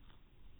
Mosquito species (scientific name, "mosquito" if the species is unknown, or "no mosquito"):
no mosquito